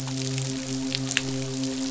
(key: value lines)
label: biophony, midshipman
recorder: SoundTrap 500